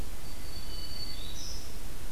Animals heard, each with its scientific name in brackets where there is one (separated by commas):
Hermit Thrush (Catharus guttatus), Black-throated Green Warbler (Setophaga virens)